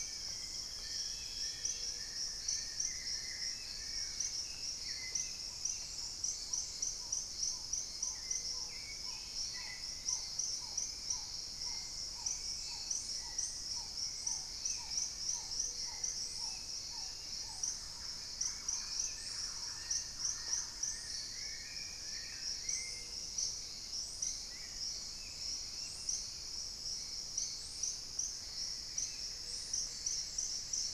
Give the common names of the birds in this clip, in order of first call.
Long-billed Woodcreeper, Hauxwell's Thrush, Gray-fronted Dove, Black-tailed Trogon, Plain-winged Antshrike, Paradise Tanager, Thrush-like Wren, unidentified bird